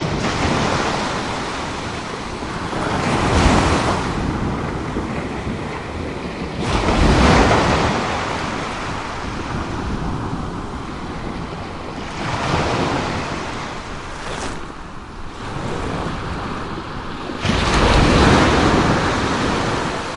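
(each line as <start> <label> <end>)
0.0 Small waves crashing. 1.8
2.5 Waves crashing. 4.3
6.2 Waves crashing. 8.8
12.0 Small waves crashing. 14.7
17.3 A big wave crashes. 20.2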